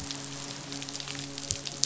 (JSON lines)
{"label": "biophony, midshipman", "recorder": "SoundTrap 500"}